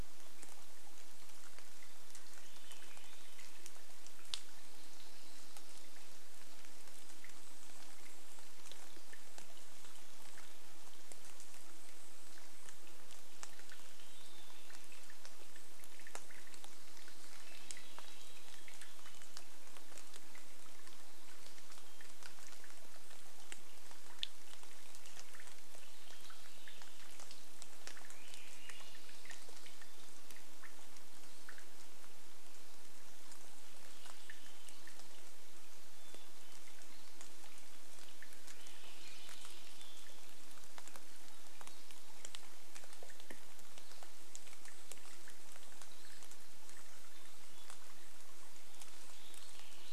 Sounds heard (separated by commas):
unidentified sound, Golden-crowned Kinglet song, rain, Swainson's Thrush song, Hermit Thrush song